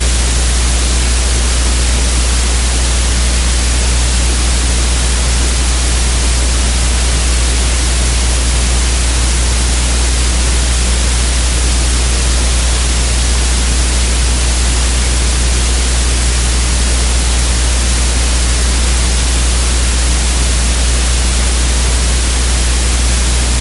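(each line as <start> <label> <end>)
0.0 A continuous low-frequency humming. 23.6
0.0 Steady rainfall. 23.6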